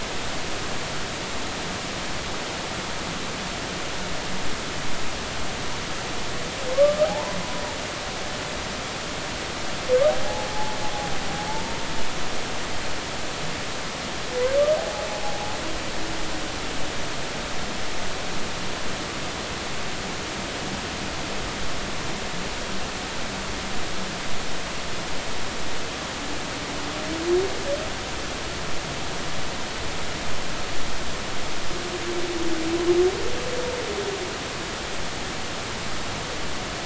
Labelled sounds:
7.0	7.4	humpback whale, 0.80 to 1.1 kHz
10.2	10.8	humpback whale, 0.80 to 0.93 kHz
11.5	11.8	humpback whale, 0.83 to 0.96 kHz
14.8	15.1	humpback whale, 0.80 to 0.90 kHz

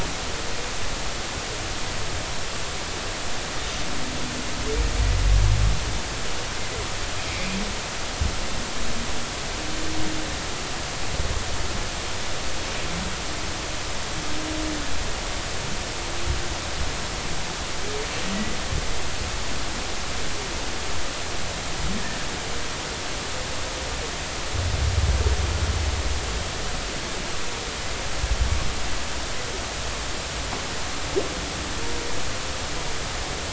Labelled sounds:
7.3	7.6	humpback whale, 2.0 to 2.6 kHz
18.3	18.6	humpback whale, 1.9 to 2.0 kHz

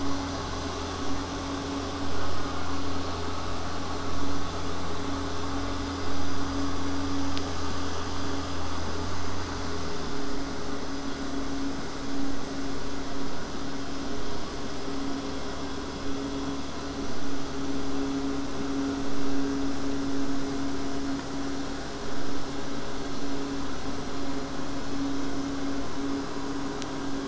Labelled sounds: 2.2	3.0	killer whale, southern resident, J pod, call S04, 0.16 to 2.4 kHz

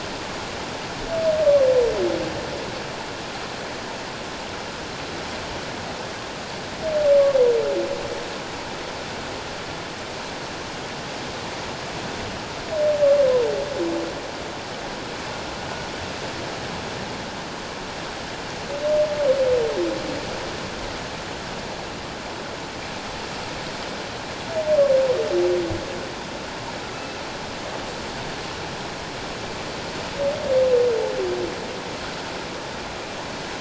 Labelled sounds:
26.9	27.2	humpback whale, 2.6 to 2.7 kHz

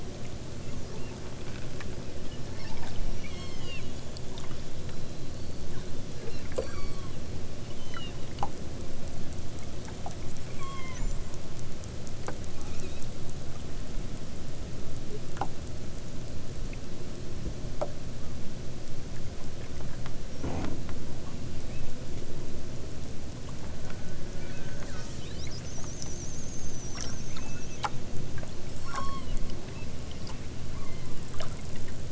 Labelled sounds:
0.9	1.3	killer whale, southern Alaska resident, 2.0 to 4.5 kHz
3.2	3.9	killer whale, southern Alaska resident, 0.87 to 8.0 kHz
6.2	7.2	killer whale, southern Alaska resident, 0.92 to 8.0 kHz
7.7	8.2	killer whale, southern Alaska resident, 2.3 to 6.5 kHz
10.5	11.2	killer whale, southern Alaska resident, 0.83 to 8.0 kHz
12.6	13.1	killer whale, southern Alaska resident, 1.1 to 4.6 kHz
21.6	21.9	killer whale, southern Alaska resident, 1.9 to 3.7 kHz
27.2	27.8	killer whale, southern Alaska resident, 0.92 to 2.9 kHz
28.7	30.0	killer whale, southern Alaska resident, 0.78 to 8.0 kHz
30.7	31.4	killer whale, southern Alaska resident, 0.87 to 4.6 kHz

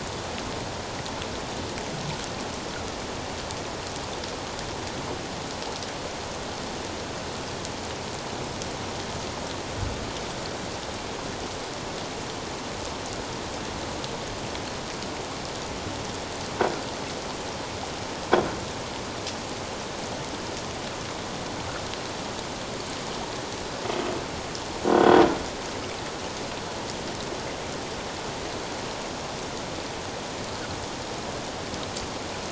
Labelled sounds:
24.9	25.2	croaking sound likely from a nearby submerged object, 3.2 to 3.4 kHz

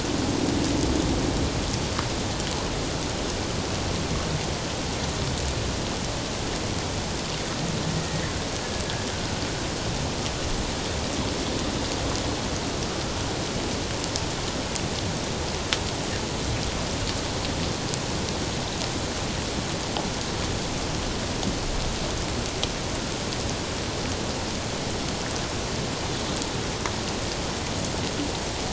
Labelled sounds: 8.0	8.2	humpback whale, 1.8 to 2.0 kHz

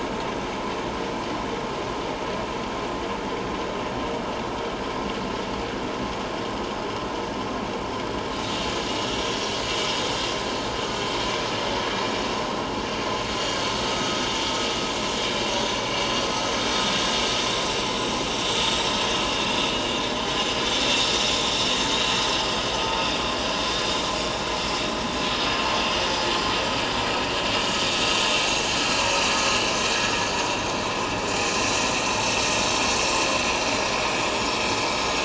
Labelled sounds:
9.3	9.5	vessel noise, 5.6 to 5.7 kHz
13.9	14.2	vessel noise, 1.2 to 1.3 kHz
22.4	22.7	vessel noise, 4.7 to 4.8 kHz
25.4	25.6	vessel noise, 4.9 to 5.1 kHz
27.5	27.8	vessel noise, 6.6 to 6.8 kHz
34.1	34.6	vessel noise, 3.3 to 5.5 kHz

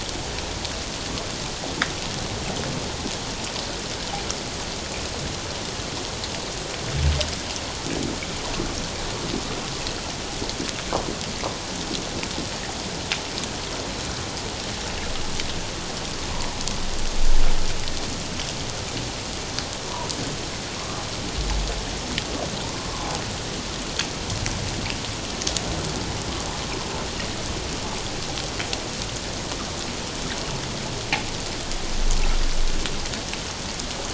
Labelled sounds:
20.7	21.0	humpback whale, 1.0 to 1.2 kHz

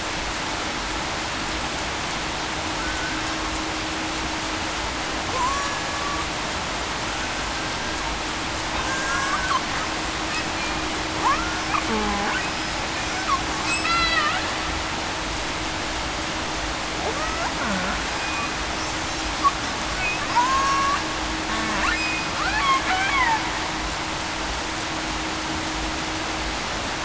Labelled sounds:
2.8	3.2	killer whale, Bigg's (transient), 1.5 to 1.6 kHz
5.3	5.7	killer whale, Bigg's (transient), 0.96 to 1.1 kHz
8.9	9.3	killer whale, Bigg's (transient), 1.5 to 1.7 kHz
11.2	11.6	killer whale, Bigg's (transient), 0.80 to 1.5 kHz
11.9	12.3	killer whale, Bigg's (transient), 0.80 to 0.91 kHz
13.7	14.2	killer whale, Bigg's (transient), 2.5 to 3.4 kHz
17.1	17.5	killer whale, Bigg's (transient), 1.1 to 1.5 kHz
20.3	21.0	killer whale, Bigg's (transient), 0.87 to 6.1 kHz
21.9	22.3	killer whale, Bigg's (transient), 2.5 to 2.6 kHz

